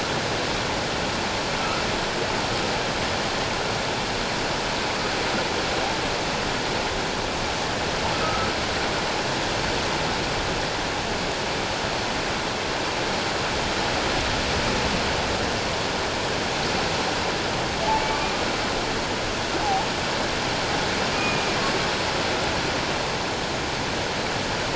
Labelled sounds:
8.1	8.5	humpback whale, 1.2 to 1.4 kHz
19.6	19.9	humpback whale, 0.78 to 0.94 kHz
21.1	21.6	humpback whale, 2.3 to 2.5 kHz

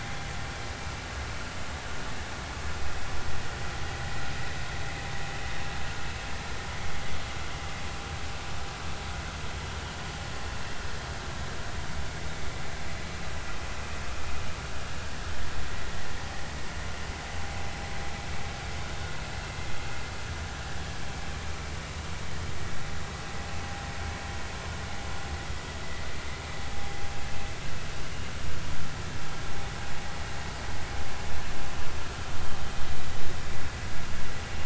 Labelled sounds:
18.8	19.0	vessel noise, 3.6 to 3.7 kHz

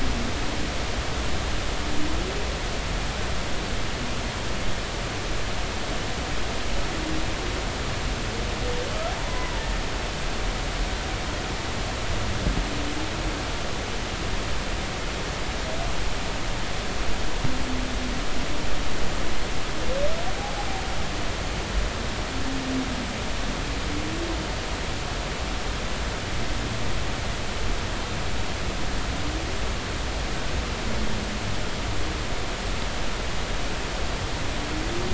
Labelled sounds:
9.2	9.7	humpback whale, 0.86 to 1.1 kHz
20.4	20.7	humpback whale, 0.80 to 0.86 kHz

